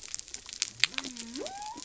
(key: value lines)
label: biophony
recorder: SoundTrap 300